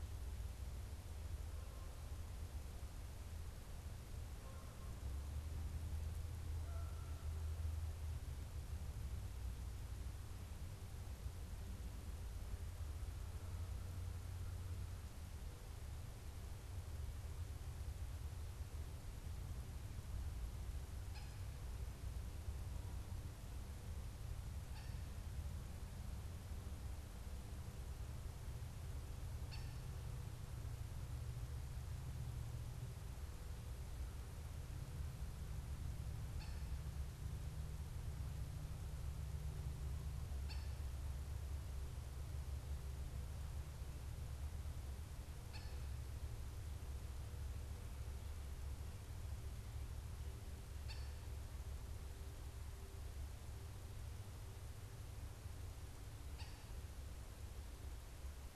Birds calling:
Cooper's Hawk (Accipiter cooperii), Canada Goose (Branta canadensis)

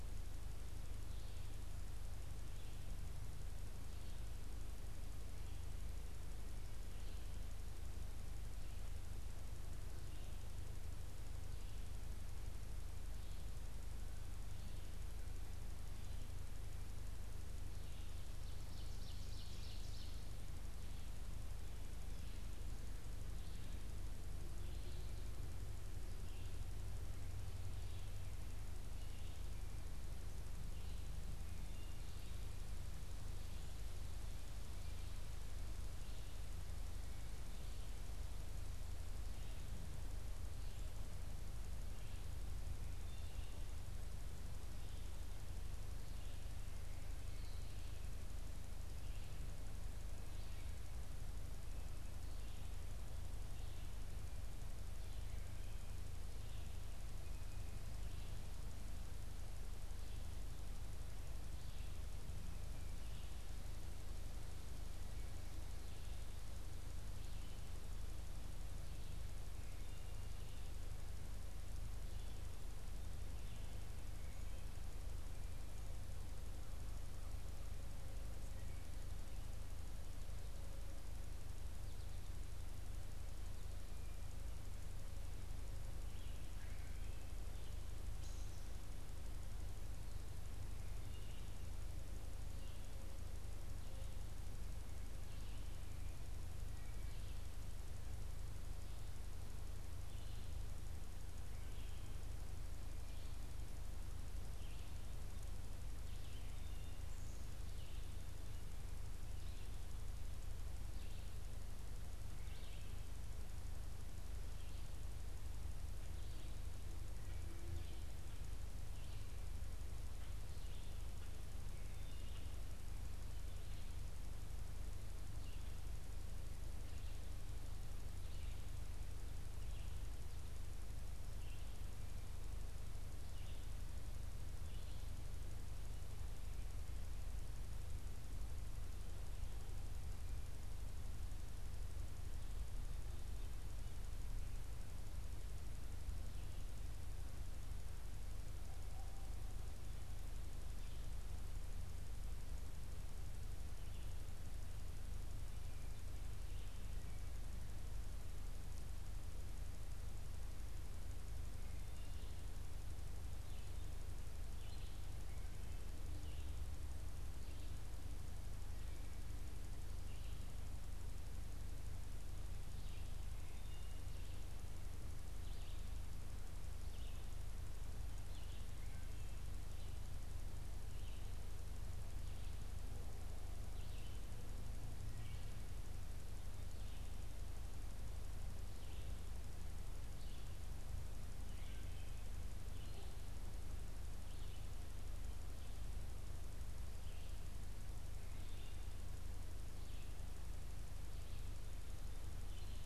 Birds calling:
Ovenbird (Seiurus aurocapilla), unidentified bird, Red-eyed Vireo (Vireo olivaceus)

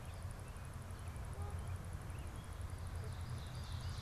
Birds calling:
Ovenbird (Seiurus aurocapilla), Canada Goose (Branta canadensis)

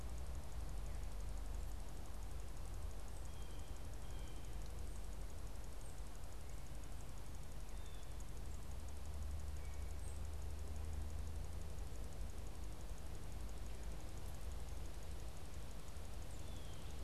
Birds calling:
Blue Jay (Cyanocitta cristata), unidentified bird

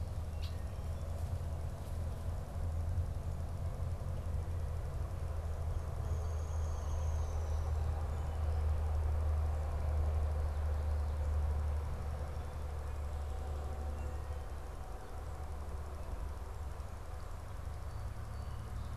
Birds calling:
Red-winged Blackbird (Agelaius phoeniceus), Downy Woodpecker (Dryobates pubescens)

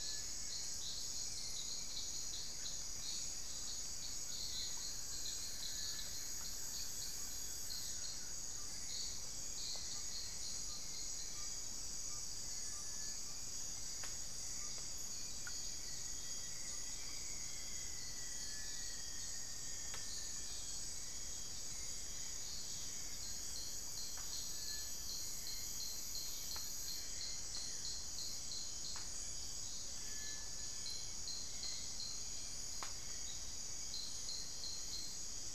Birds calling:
Rufous-fronted Antthrush (Formicarius rufifrons), Buff-throated Woodcreeper (Xiphorhynchus guttatus), Ferruginous Pygmy-Owl (Glaucidium brasilianum), Hauxwell's Thrush (Turdus hauxwelli)

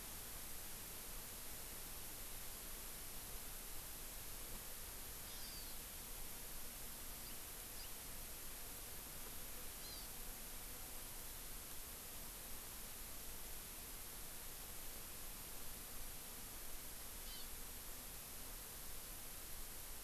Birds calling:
Hawaii Amakihi (Chlorodrepanis virens)

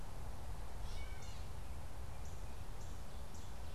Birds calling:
Northern Cardinal (Cardinalis cardinalis), Gray Catbird (Dumetella carolinensis)

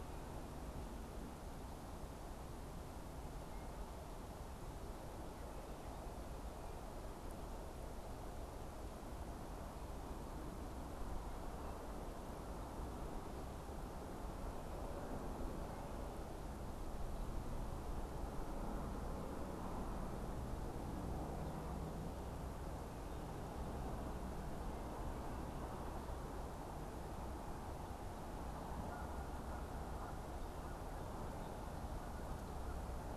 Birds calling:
Canada Goose (Branta canadensis)

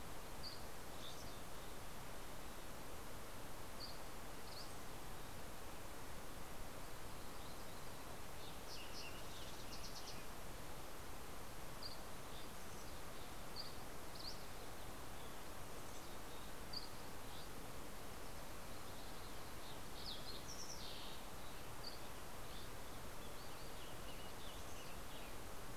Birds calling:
Fox Sparrow (Passerella iliaca), Mountain Chickadee (Poecile gambeli), Western Tanager (Piranga ludoviciana), Dusky Flycatcher (Empidonax oberholseri)

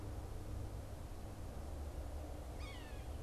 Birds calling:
Yellow-bellied Sapsucker (Sphyrapicus varius)

